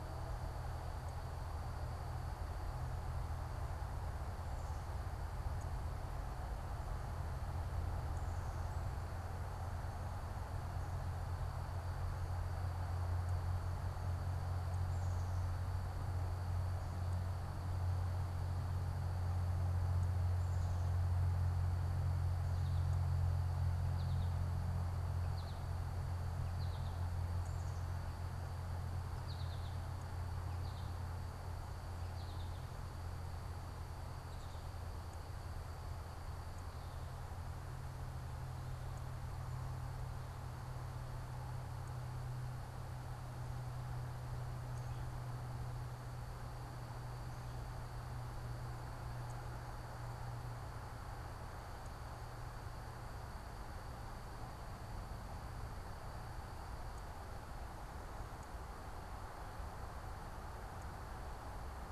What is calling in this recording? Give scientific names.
Spinus tristis